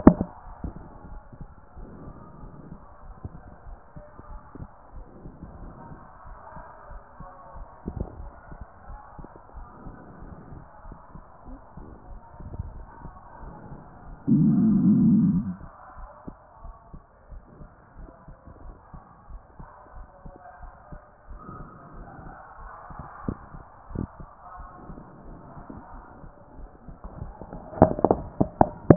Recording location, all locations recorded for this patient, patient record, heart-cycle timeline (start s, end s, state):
pulmonary valve (PV)
aortic valve (AV)+pulmonary valve (PV)+tricuspid valve (TV)+mitral valve (MV)
#Age: nan
#Sex: Female
#Height: nan
#Weight: nan
#Pregnancy status: True
#Murmur: Absent
#Murmur locations: nan
#Most audible location: nan
#Systolic murmur timing: nan
#Systolic murmur shape: nan
#Systolic murmur grading: nan
#Systolic murmur pitch: nan
#Systolic murmur quality: nan
#Diastolic murmur timing: nan
#Diastolic murmur shape: nan
#Diastolic murmur grading: nan
#Diastolic murmur pitch: nan
#Diastolic murmur quality: nan
#Outcome: Abnormal
#Campaign: 2014 screening campaign
0.00	8.78	unannotated
8.78	8.90	diastole
8.90	9.00	S1
9.00	9.16	systole
9.16	9.26	S2
9.26	9.56	diastole
9.56	9.68	S1
9.68	9.84	systole
9.84	9.96	S2
9.96	10.24	diastole
10.24	10.36	S1
10.36	10.52	systole
10.52	10.62	S2
10.62	10.86	diastole
10.86	10.96	S1
10.96	11.14	systole
11.14	11.24	S2
11.24	11.48	diastole
11.48	11.60	S1
11.60	11.78	systole
11.78	11.88	S2
11.88	12.08	diastole
12.08	28.96	unannotated